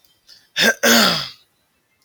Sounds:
Throat clearing